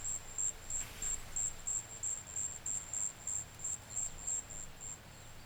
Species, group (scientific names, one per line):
Natula averni
Orthoptera